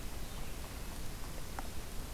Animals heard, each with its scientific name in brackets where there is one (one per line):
Red-eyed Vireo (Vireo olivaceus)